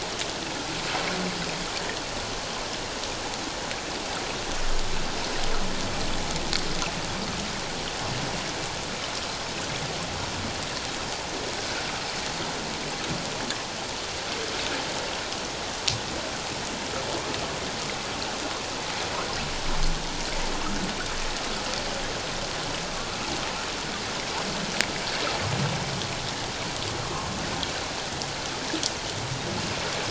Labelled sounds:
11.6	11.8	water noise, 1.4 to 1.7 kHz
27.0	27.3	water noise, 1.0 to 1.2 kHz

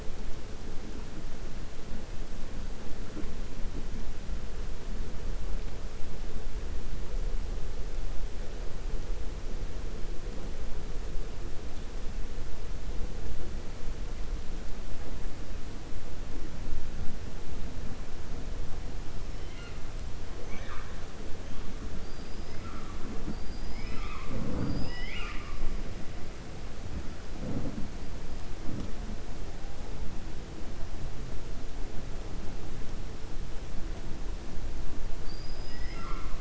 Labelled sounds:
22.0	22.5	killer whale, 4.6 to 5.2 kHz
35.1	36.3	killer whale, 1.0 to 5.2 kHz

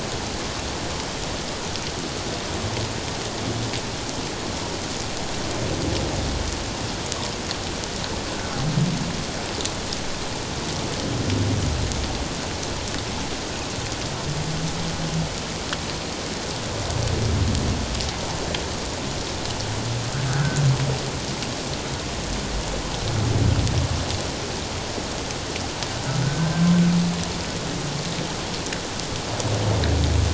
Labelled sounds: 20.3	20.6	humpback whale, 1.4 to 1.7 kHz
26.2	26.7	humpback whale, 1.4 to 1.6 kHz

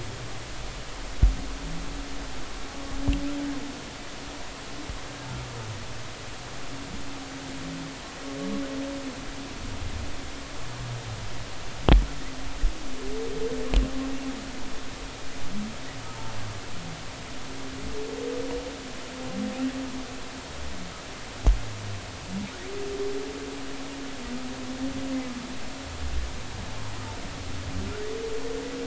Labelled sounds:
16.1	16.3	humpback whale, 0.86 to 0.96 kHz

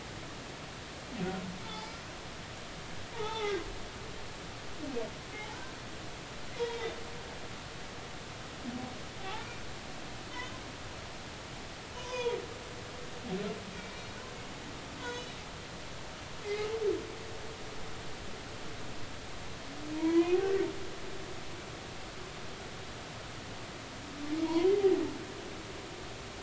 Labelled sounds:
1.7	2.0	humpback whale, 0.83 to 5.1 kHz
3.1	3.6	humpback whale, 0.80 to 3.6 kHz
6.6	7.0	humpback whale, 0.86 to 3.8 kHz
9.2	9.6	humpback whale, 0.80 to 1.5 kHz
12.0	12.4	humpback whale, 0.90 to 3.6 kHz
13.7	14.1	humpback whale, 2.3 to 2.4 kHz
15.0	15.4	humpback whale, 3.7 to 6.5 kHz
16.4	16.7	humpback whale, 2.0 to 2.3 kHz
20.0	20.7	humpback whale, 0.90 to 2.2 kHz
24.4	25.0	humpback whale, 0.80 to 1.1 kHz

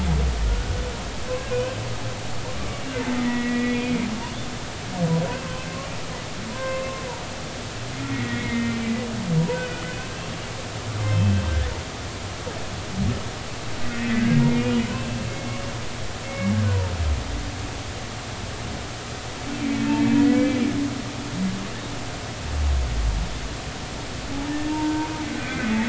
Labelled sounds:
0.5	0.8	humpback whale, 1.4 to 1.5 kHz
1.5	1.8	humpback whale, 2.4 to 2.7 kHz
2.6	2.8	humpback whale, 1.1 to 1.2 kHz
3.2	3.8	humpback whale, 1.8 to 2.5 kHz
6.5	6.9	humpback whale, 0.96 to 2.2 kHz
8.1	10.0	humpback whale, 0.90 to 2.6 kHz
11.1	11.4	humpback whale, 2.6 to 3.3 kHz
14.7	15.6	humpback whale, 2.1 to 3.1 kHz
17.3	17.6	humpback whale, 2.1 to 2.3 kHz
19.8	20.1	humpback whale, 2.5 to 2.7 kHz
24.7	25.8	humpback whale, 0.86 to 2.1 kHz

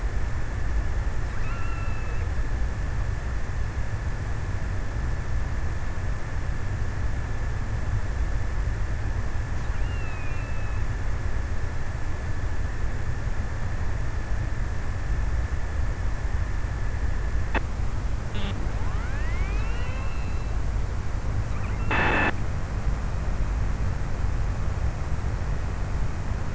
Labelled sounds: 1.0	2.9	killer whale, offshore, 0.97 to 3.0 kHz
9.2	11.0	killer whale, offshore, 0.96 to 3.1 kHz

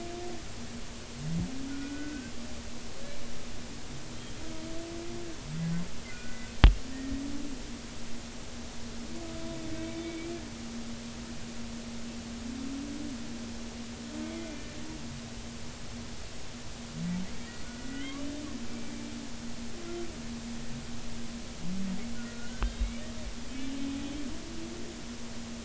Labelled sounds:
1.7	2.3	humpback whale, 1.4 to 1.6 kHz
6.1	7.2	humpback whale, 1.4 to 1.9 kHz
10.0	10.3	humpback whale, 2.2 to 2.4 kHz
14.3	14.7	humpback whale, 2.3 to 2.4 kHz
17.3	18.9	humpback whale, 1.4 to 2.4 kHz
22.1	22.9	humpback whale, 1.4 to 3.9 kHz

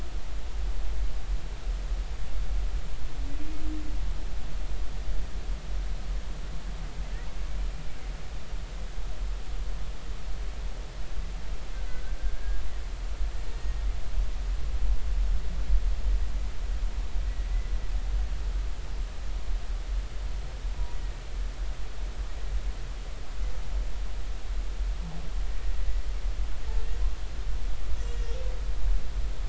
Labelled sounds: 12.3	12.6	humpback whale, 1.6 to 1.7 kHz
28.0	28.3	humpback whale, 2.8 to 2.9 kHz

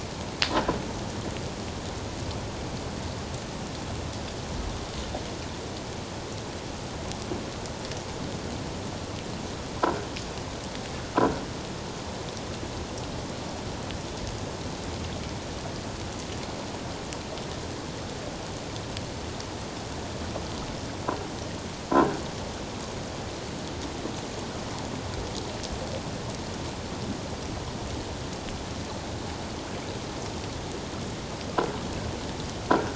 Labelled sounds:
32.7	32.9	croaking sound likely from a nearby submerged object, 1.3 to 1.7 kHz

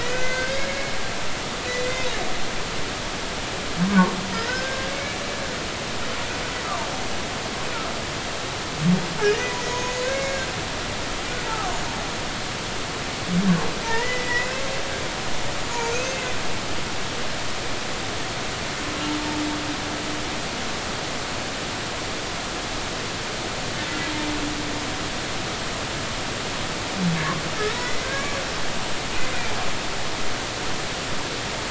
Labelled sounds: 0.0	0.9	humpback whale, 1.5 to 2.2 kHz
3.8	4.9	humpback whale, 0.86 to 5.3 kHz
6.6	6.9	humpback whale, 0.86 to 1.3 kHz
9.7	10.4	humpback whale, 2.1 to 6.6 kHz
11.4	11.7	humpback whale, 0.80 to 1.4 kHz
13.9	14.5	humpback whale, 1.7 to 2.1 kHz
16.0	16.4	humpback whale, 2.0 to 2.2 kHz
27.7	28.4	humpback whale, 1.1 to 2.1 kHz

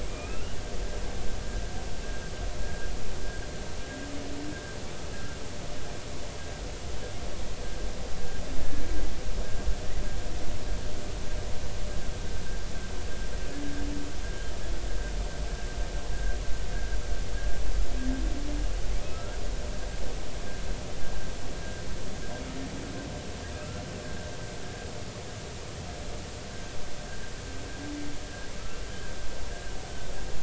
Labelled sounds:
0.1	0.6	humpback whale, 1.2 to 3.0 kHz
2.6	2.9	humpback whale, 1.4 to 1.7 kHz
16.1	16.4	humpback whale, 1.5 to 1.7 kHz
19.1	19.4	humpback whale, 1.2 to 1.5 kHz
23.6	23.8	humpback whale, 1.2 to 1.4 kHz
26.5	26.8	humpback whale, 1.5 to 1.6 kHz

